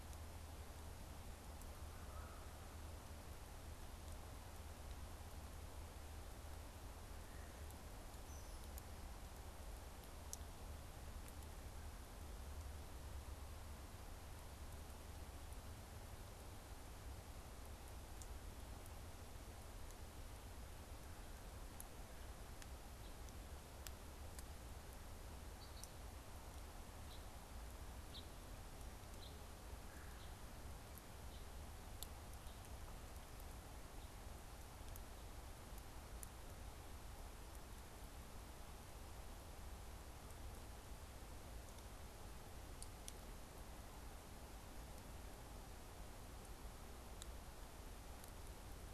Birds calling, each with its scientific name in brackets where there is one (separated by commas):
Red-bellied Woodpecker (Melanerpes carolinus), unidentified bird